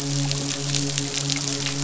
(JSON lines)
{"label": "biophony, midshipman", "recorder": "SoundTrap 500"}